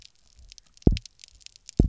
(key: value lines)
label: biophony, double pulse
recorder: SoundTrap 300